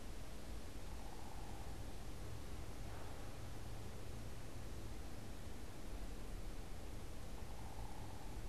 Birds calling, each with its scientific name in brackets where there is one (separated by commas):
unidentified bird